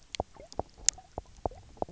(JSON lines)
{"label": "biophony, knock croak", "recorder": "SoundTrap 300"}